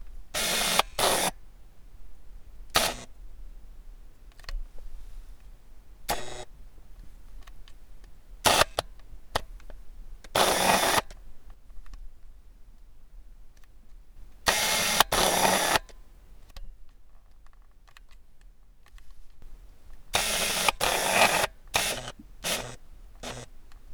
What is the object being adjusted likely called?
tape